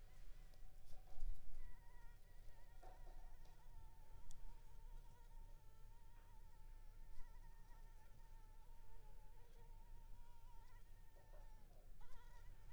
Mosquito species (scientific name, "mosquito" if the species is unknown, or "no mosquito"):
Anopheles arabiensis